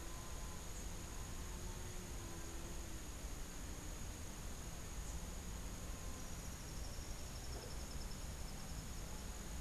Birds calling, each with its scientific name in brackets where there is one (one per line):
Tropical Kingbird (Tyrannus melancholicus)